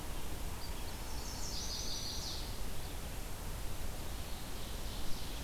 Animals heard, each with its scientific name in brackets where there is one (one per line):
Ovenbird (Seiurus aurocapilla)
Chestnut-sided Warbler (Setophaga pensylvanica)
Red-eyed Vireo (Vireo olivaceus)